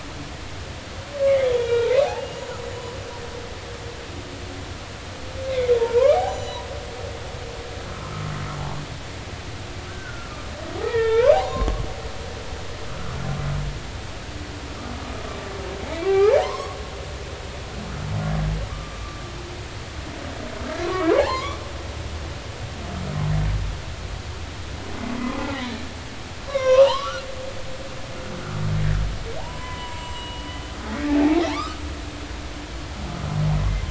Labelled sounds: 1.4	2.6	humpback whale, 1.3 to 6.9 kHz
5.5	6.6	humpback whale, 0.80 to 7.0 kHz
9.9	11.8	humpback whale, 0.80 to 3.7 kHz
16.0	16.7	humpback whale, 0.80 to 5.6 kHz
17.4	19.0	humpback whale, 0.86 to 1.2 kHz
20.8	21.6	humpback whale, 0.80 to 2.4 kHz
25.5	25.8	humpback whale, 3.8 to 4.1 kHz
26.4	27.2	humpback whale, 0.80 to 5.9 kHz
29.4	31.8	humpback whale, 0.80 to 7.6 kHz

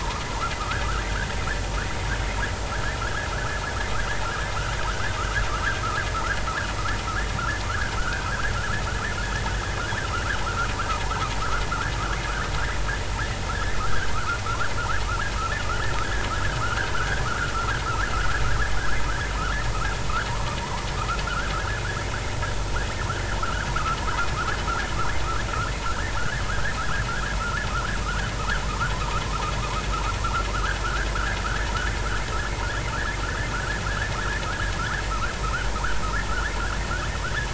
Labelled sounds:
0.6	1.3	vessel noise, 1.1 to 1.8 kHz
2.7	3.0	vessel noise, 1.5 to 1.9 kHz
4.9	5.1	vessel noise, 1.2 to 1.8 kHz
6.5	6.7	vessel noise, 1.2 to 1.8 kHz
7.7	8.3	vessel noise, 1.2 to 1.8 kHz
11.4	11.6	vessel noise, 1.1 to 1.5 kHz
13.5	14.4	vessel noise, 1.1 to 1.9 kHz
16.9	17.5	vessel noise, 1.1 to 1.7 kHz
20.3	20.6	vessel noise, 0.90 to 1.3 kHz
21.3	21.5	vessel noise, 1.2 to 1.7 kHz
23.4	23.7	vessel noise, 1.2 to 1.8 kHz
24.4	24.6	vessel noise, 1.0 to 1.8 kHz
25.8	26.8	vessel noise, 1.2 to 2.0 kHz
30.5	31.1	vessel noise, 1.2 to 1.8 kHz
31.4	31.7	vessel noise, 1.2 to 1.9 kHz
33.2	33.8	vessel noise, 1.2 to 1.8 kHz
34.8	35.7	vessel noise, 0.93 to 1.8 kHz

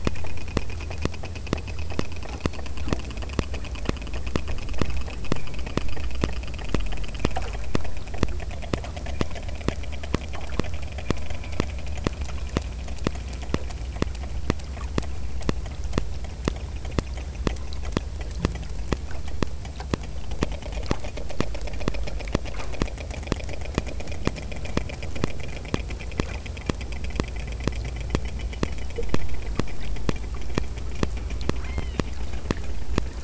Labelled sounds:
31.6	32.2	killer whale, southern Alaska resident, 1.6 to 4.5 kHz

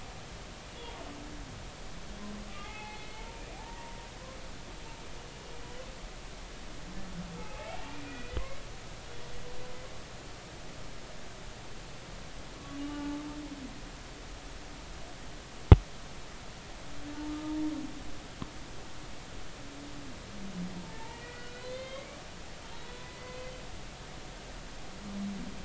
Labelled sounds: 2.5	4.0	humpback whale, 0.80 to 4.4 kHz
7.4	8.4	humpback whale, 0.80 to 2.6 kHz
12.7	13.2	humpback whale, 0.83 to 3.0 kHz
20.7	22.1	humpback whale, 0.83 to 4.3 kHz
23.0	23.4	humpback whale, 2.0 to 2.1 kHz
23.8	24.0	humpback whale, 3.8 to 4.0 kHz

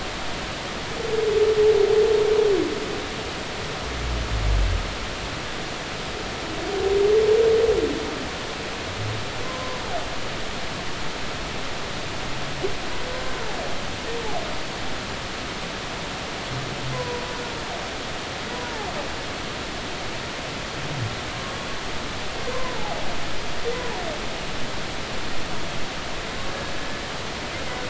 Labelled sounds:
9.4	9.8	humpback whale, 0.96 to 1.1 kHz
16.9	17.2	humpback whale, 0.93 to 1.1 kHz
22.5	23.0	humpback whale, 0.80 to 1.2 kHz

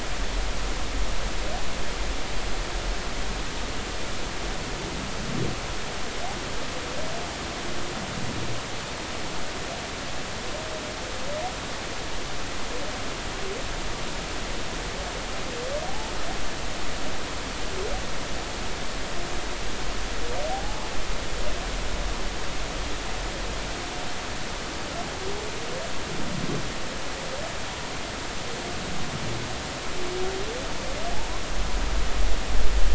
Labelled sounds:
15.9	16.1	humpback whale, 0.80 to 0.93 kHz
20.4	20.9	humpback whale, 0.80 to 1.1 kHz
31.1	31.4	humpback whale, 0.80 to 1.1 kHz

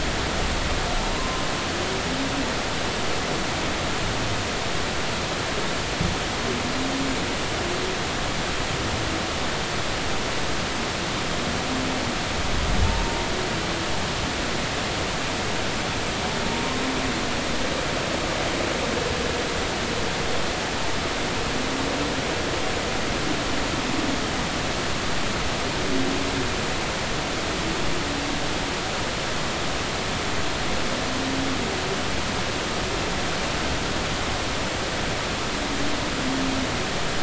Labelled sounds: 1.2	1.4	humpback whale, 0.93 to 1.1 kHz
16.5	16.8	humpback whale, 0.90 to 1.1 kHz

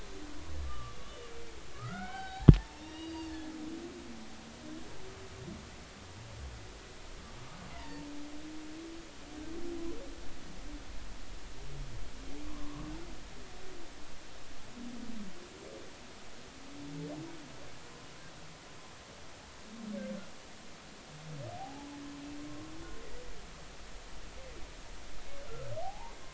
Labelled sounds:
0.0	3.5	humpback whale, 0.80 to 5.4 kHz
7.7	8.1	humpback whale, 0.86 to 2.1 kHz
12.4	12.9	humpback whale, 0.96 to 1.2 kHz
21.6	21.9	humpback whale, 0.80 to 0.90 kHz
25.8	26.2	humpback whale, 0.80 to 1.1 kHz

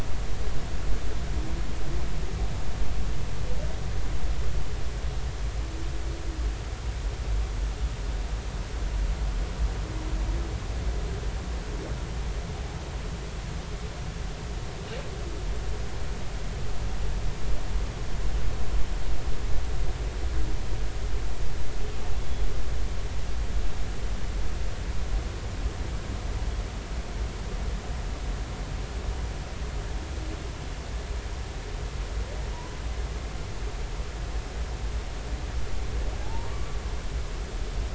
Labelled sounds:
22.2	22.5	humpback whale, 3.3 to 3.6 kHz
36.2	36.8	humpback whale, 0.80 to 1.2 kHz

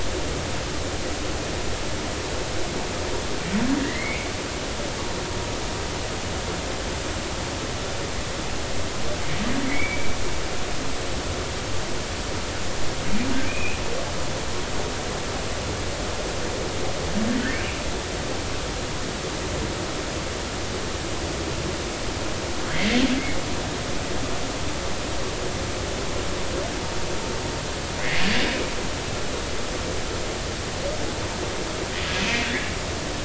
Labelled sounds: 3.8	4.3	humpback whale, 1.8 to 2.5 kHz
9.6	10.2	humpback whale, 2.0 to 2.4 kHz
13.4	13.8	humpback whale, 2.2 to 2.6 kHz
22.7	23.0	humpback whale, 1.9 to 2.2 kHz

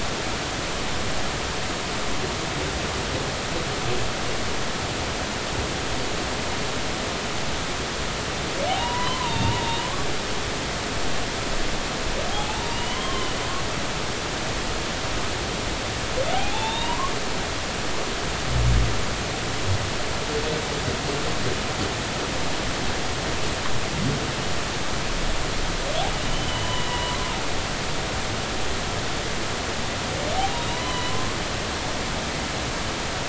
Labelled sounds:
8.8	9.8	humpback whale, 0.86 to 3.7 kHz
12.3	13.4	humpback whale, 0.80 to 3.3 kHz
16.3	17.1	humpback whale, 0.80 to 4.0 kHz
26.3	27.2	humpback whale, 0.93 to 3.1 kHz
30.7	31.3	humpback whale, 0.90 to 4.1 kHz

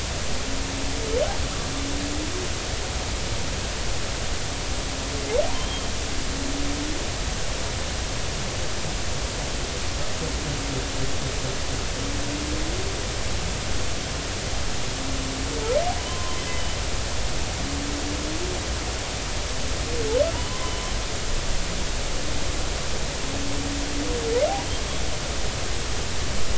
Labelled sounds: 5.5	5.8	humpback whale, 3.0 to 3.3 kHz
16.0	16.4	humpback whale, 0.90 to 1.1 kHz
20.3	20.6	humpback whale, 2.8 to 3.1 kHz

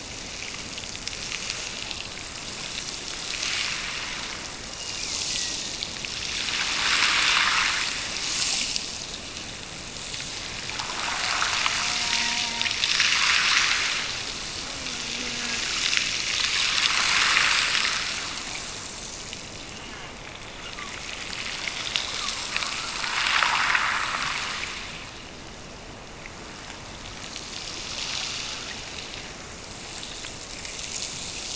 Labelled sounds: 4.6	5.8	killer whale, Bigg's (transient), Gulf of Alaska transient, 1.7 to 2.9 kHz

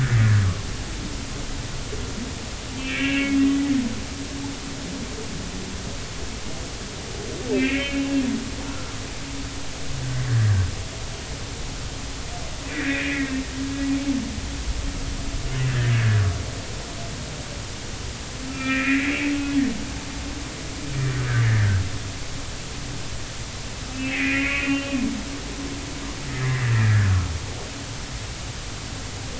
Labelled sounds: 2.7	3.4	humpback whale, 1.5 to 2.8 kHz
7.5	8.2	humpback whale, 1.5 to 2.8 kHz
8.7	8.9	humpback whale, 1.2 to 1.5 kHz
12.7	13.4	humpback whale, 1.5 to 2.6 kHz
15.7	15.9	humpback whale, 1.5 to 1.9 kHz
18.5	19.3	humpback whale, 1.2 to 2.7 kHz
21.1	21.5	humpback whale, 1.4 to 1.8 kHz
23.9	25.0	humpback whale, 1.6 to 2.8 kHz
26.3	27.2	humpback whale, 1.3 to 2.1 kHz

